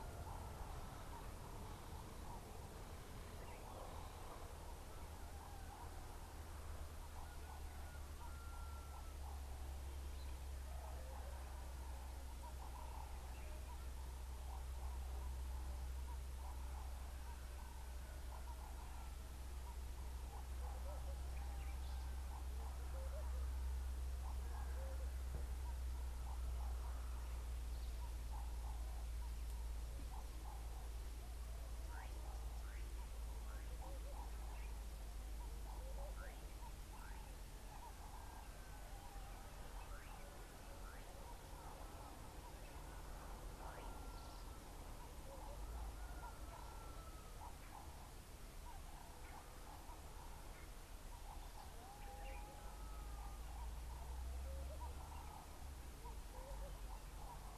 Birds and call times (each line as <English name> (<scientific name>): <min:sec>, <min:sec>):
Ring-necked Dove (Streptopelia capicola): 0:18.8, 0:37.1
Laughing Dove (Streptopelia senegalensis): 0:23.1